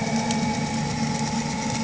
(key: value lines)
label: anthrophony, boat engine
recorder: HydroMoth